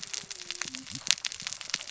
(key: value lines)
label: biophony, cascading saw
recorder: SoundTrap 600 or HydroMoth